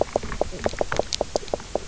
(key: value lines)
label: biophony, knock croak
recorder: SoundTrap 300